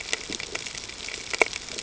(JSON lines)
{"label": "ambient", "recorder": "HydroMoth"}